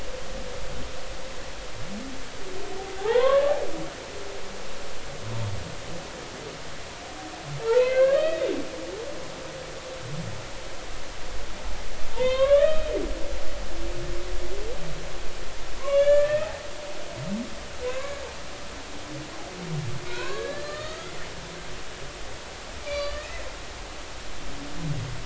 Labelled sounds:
3.0	3.5	humpback whale, 0.80 to 2.1 kHz
7.6	8.4	humpback whale, 0.83 to 4.6 kHz
12.1	12.9	humpback whale, 0.86 to 3.8 kHz
15.8	16.5	humpback whale, 0.93 to 3.5 kHz
17.8	18.2	humpback whale, 1.5 to 2.3 kHz
20.0	21.1	humpback whale, 0.93 to 4.7 kHz
22.8	23.3	humpback whale, 1.1 to 4.7 kHz

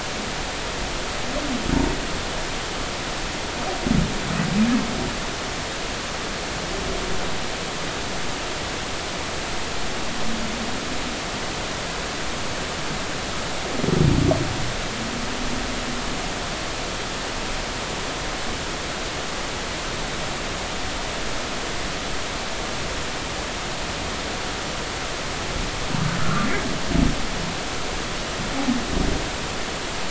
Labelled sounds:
26.2	26.5	humpback whale, 1.1 to 1.5 kHz

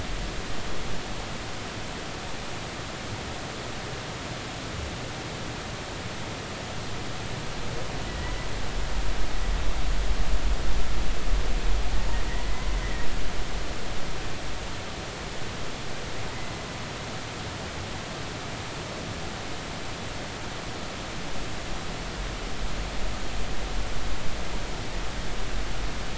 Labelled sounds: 8.1	8.3	humpback whale, 1.8 to 2.0 kHz
12.8	13.1	humpback whale, 1.8 to 2.1 kHz

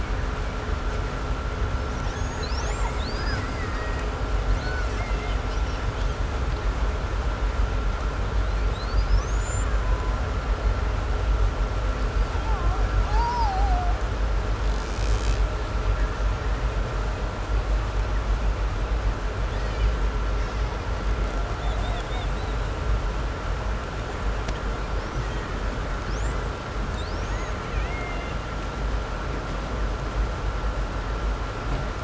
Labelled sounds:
1.7	6.3	killer whale, 0.59 to 8.0 kHz
8.3	10.4	killer whale, Bigg's (transient), 0.80 to 8.0 kHz
12.0	14.1	killer whale, 0.51 to 8.0 kHz
14.5	15.5	killer whale, Bigg's (transient), 1.4 to 8.0 kHz
19.3	20.9	killer whale, 1.4 to 6.8 kHz
21.4	22.7	killer whale, 1.6 to 7.8 kHz
24.8	25.6	killer whale, 1.3 to 7.7 kHz
25.9	28.7	killer whale, 1.5 to 8.0 kHz

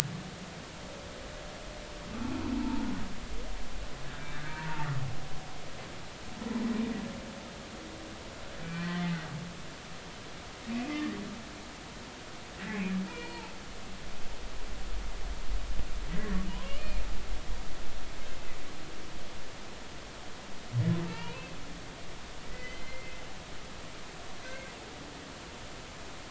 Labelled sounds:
2.5	2.9	humpback whale, 0.83 to 0.99 kHz
4.0	4.9	humpback whale, 0.83 to 1.8 kHz
8.6	9.0	humpback whale, 1.8 to 2.4 kHz
10.0	10.9	humpback whale, 1.9 to 2.8 kHz
13.1	13.5	humpback whale, 0.83 to 2.9 kHz
16.1	17.0	humpback whale, 0.93 to 2.5 kHz
21.1	21.5	humpback whale, 0.86 to 3.0 kHz
22.5	23.2	humpback whale, 1.9 to 3.1 kHz

